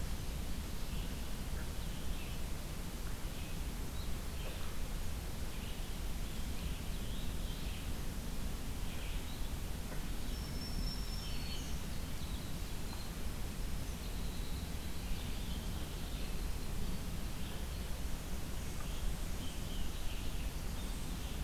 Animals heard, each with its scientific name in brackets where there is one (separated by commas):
Red-eyed Vireo (Vireo olivaceus), Scarlet Tanager (Piranga olivacea), Black-throated Green Warbler (Setophaga virens), Winter Wren (Troglodytes hiemalis)